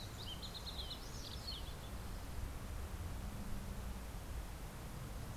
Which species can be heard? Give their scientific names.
Passerella iliaca, Cardellina pusilla